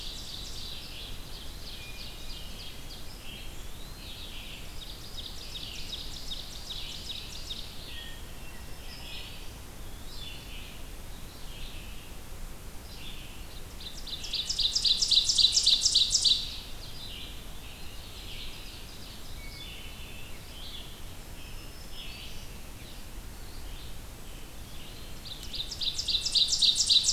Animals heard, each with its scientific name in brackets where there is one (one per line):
Ovenbird (Seiurus aurocapilla)
Black-throated Green Warbler (Setophaga virens)
Hermit Thrush (Catharus guttatus)
Eastern Wood-Pewee (Contopus virens)
Red-eyed Vireo (Vireo olivaceus)